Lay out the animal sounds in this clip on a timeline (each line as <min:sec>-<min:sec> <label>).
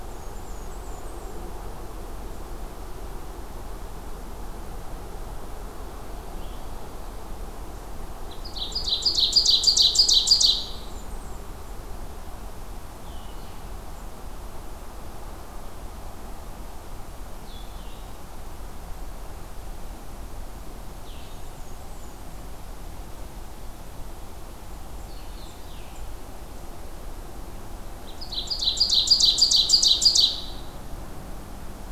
0:00.0-0:01.5 Blackburnian Warbler (Setophaga fusca)
0:06.2-0:06.7 Blue-headed Vireo (Vireo solitarius)
0:08.2-0:10.7 Ovenbird (Seiurus aurocapilla)
0:10.4-0:11.7 Blackburnian Warbler (Setophaga fusca)
0:12.9-0:13.7 Blue-headed Vireo (Vireo solitarius)
0:17.4-0:18.1 Blue-headed Vireo (Vireo solitarius)
0:20.9-0:21.5 Blue-headed Vireo (Vireo solitarius)
0:21.2-0:22.5 Blackburnian Warbler (Setophaga fusca)
0:24.9-0:26.2 Blackburnian Warbler (Setophaga fusca)
0:25.0-0:25.9 Blue-headed Vireo (Vireo solitarius)
0:28.0-0:30.6 Ovenbird (Seiurus aurocapilla)